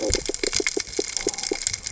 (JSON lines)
{"label": "biophony", "recorder": "HydroMoth"}